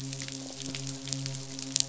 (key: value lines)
label: biophony, midshipman
recorder: SoundTrap 500